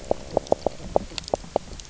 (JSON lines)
{"label": "biophony, knock croak", "recorder": "SoundTrap 300"}